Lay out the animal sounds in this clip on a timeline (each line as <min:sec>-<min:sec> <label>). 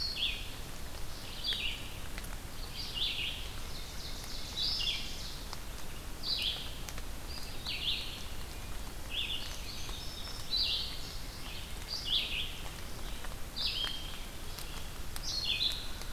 0:00.0-0:05.0 Red-eyed Vireo (Vireo olivaceus)
0:03.2-0:05.3 Ovenbird (Seiurus aurocapilla)
0:06.1-0:16.0 Red-eyed Vireo (Vireo olivaceus)
0:08.2-0:09.0 Wood Thrush (Hylocichla mustelina)
0:09.2-0:10.9 Indigo Bunting (Passerina cyanea)